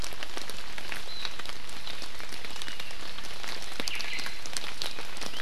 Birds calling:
Omao (Myadestes obscurus), Apapane (Himatione sanguinea)

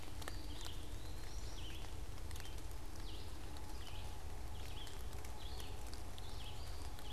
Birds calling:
Red-eyed Vireo (Vireo olivaceus), Eastern Wood-Pewee (Contopus virens)

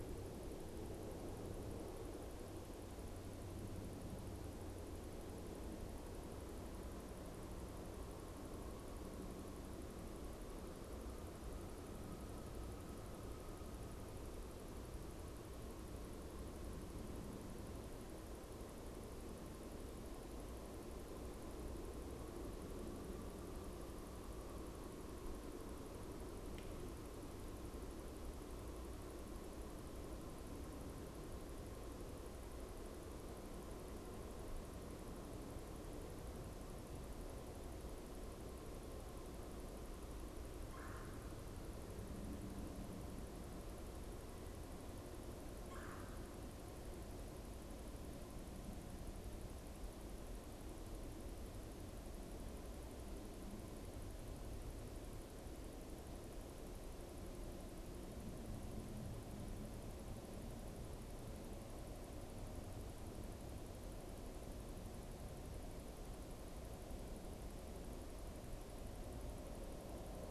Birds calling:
Red-bellied Woodpecker (Melanerpes carolinus)

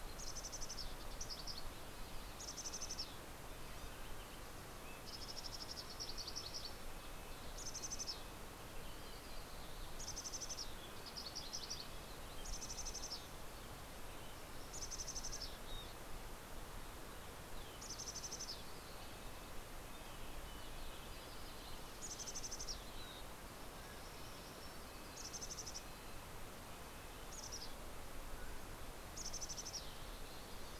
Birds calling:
Red-breasted Nuthatch (Sitta canadensis), Yellow-rumped Warbler (Setophaga coronata), Mountain Quail (Oreortyx pictus), Mountain Chickadee (Poecile gambeli)

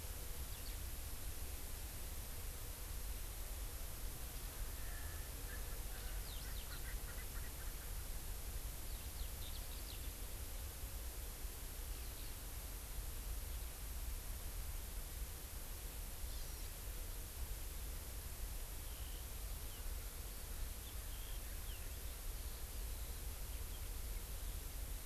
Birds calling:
Hawaii Amakihi (Chlorodrepanis virens), Eurasian Skylark (Alauda arvensis), Erckel's Francolin (Pternistis erckelii)

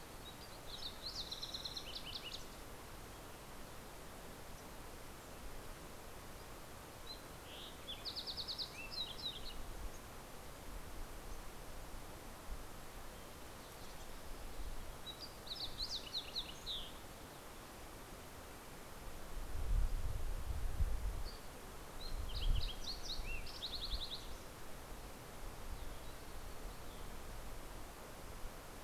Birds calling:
Fox Sparrow (Passerella iliaca)

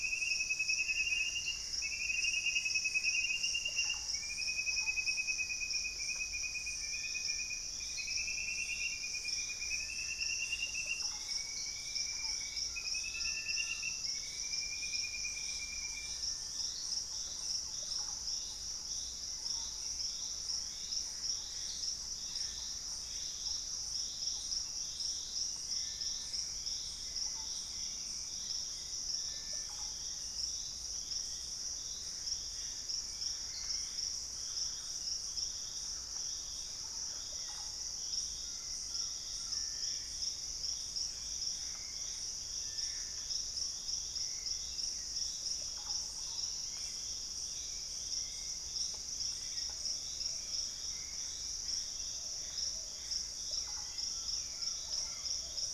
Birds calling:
Purple-throated Fruitcrow (Querula purpurata), Russet-backed Oropendola (Psarocolius angustifrons), Thrush-like Wren (Campylorhynchus turdinus), Hauxwell's Thrush (Turdus hauxwelli), Plumbeous Pigeon (Patagioenas plumbea), Gray Antbird (Cercomacra cinerascens), Collared Trogon (Trogon collaris)

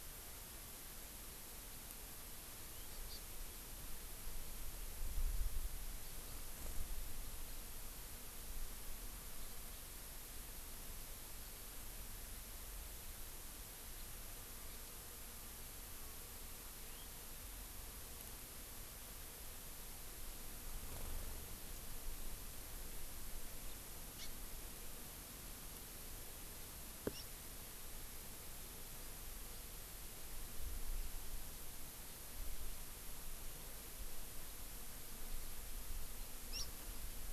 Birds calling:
House Finch (Haemorhous mexicanus), Hawaii Amakihi (Chlorodrepanis virens)

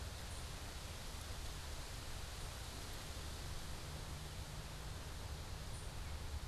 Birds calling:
unidentified bird

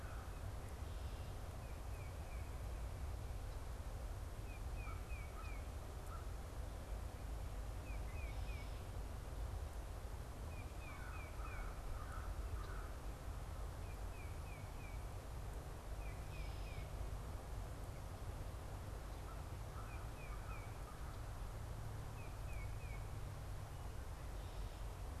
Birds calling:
American Crow (Corvus brachyrhynchos), Red-winged Blackbird (Agelaius phoeniceus), Tufted Titmouse (Baeolophus bicolor)

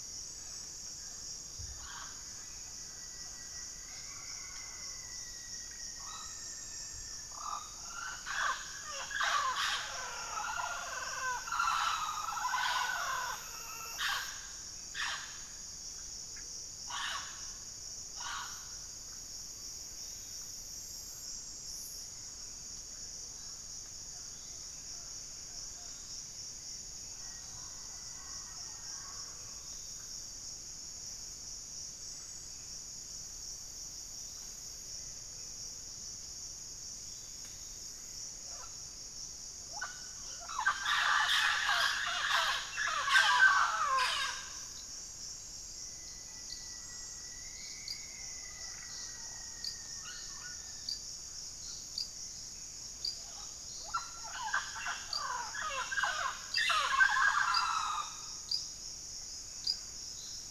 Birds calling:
Rufous-fronted Antthrush (Formicarius rufifrons), unidentified bird, White-rumped Sirystes (Sirystes albocinereus), Mealy Parrot (Amazona farinosa), Black-faced Antthrush (Formicarius analis)

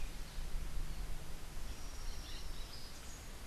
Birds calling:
Rufous-breasted Wren (Pheugopedius rutilus)

